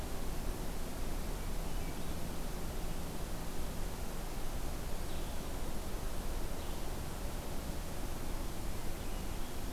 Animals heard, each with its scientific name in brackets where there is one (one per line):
Blue-headed Vireo (Vireo solitarius)